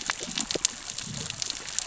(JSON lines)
{"label": "biophony, cascading saw", "recorder": "SoundTrap 600 or HydroMoth"}